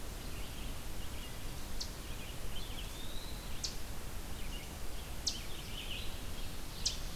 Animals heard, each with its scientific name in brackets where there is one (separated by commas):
Red-eyed Vireo (Vireo olivaceus), Eastern Chipmunk (Tamias striatus), Eastern Wood-Pewee (Contopus virens)